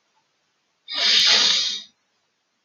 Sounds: Sniff